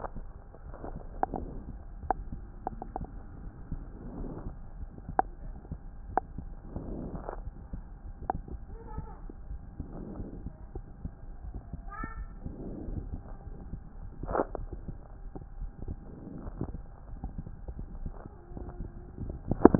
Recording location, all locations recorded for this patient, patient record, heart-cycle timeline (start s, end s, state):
aortic valve (AV)
aortic valve (AV)+pulmonary valve (PV)+tricuspid valve (TV)+mitral valve (MV)
#Age: Child
#Sex: Male
#Height: 110.0 cm
#Weight: 20.5 kg
#Pregnancy status: False
#Murmur: Absent
#Murmur locations: nan
#Most audible location: nan
#Systolic murmur timing: nan
#Systolic murmur shape: nan
#Systolic murmur grading: nan
#Systolic murmur pitch: nan
#Systolic murmur quality: nan
#Diastolic murmur timing: nan
#Diastolic murmur shape: nan
#Diastolic murmur grading: nan
#Diastolic murmur pitch: nan
#Diastolic murmur quality: nan
#Outcome: Normal
#Campaign: 2015 screening campaign
0.00	8.44	unannotated
8.44	8.65	diastole
8.65	8.80	S1
8.80	8.92	systole
8.92	9.05	S2
9.05	9.49	diastole
9.49	9.62	S1
9.62	9.78	systole
9.78	9.88	S2
9.88	10.15	diastole
10.15	10.29	S1
10.29	10.42	systole
10.42	10.52	S2
10.52	10.74	diastole
10.74	10.84	S1
10.84	11.02	systole
11.02	11.12	S2
11.12	11.44	diastole
11.44	11.54	S1
11.54	11.70	systole
11.70	11.80	S2
11.80	12.15	diastole
12.15	12.29	S1
12.29	12.44	systole
12.44	12.54	S2
12.54	12.90	diastole
12.90	13.02	S1
13.02	13.11	systole
13.11	13.20	S2
13.20	13.46	diastole
13.46	13.56	S1
13.56	13.72	systole
13.72	13.80	S2
13.80	14.04	diastole
14.04	19.79	unannotated